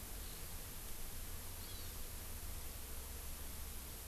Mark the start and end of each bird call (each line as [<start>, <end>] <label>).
[0.14, 0.44] Eurasian Skylark (Alauda arvensis)
[1.54, 1.94] Hawaii Amakihi (Chlorodrepanis virens)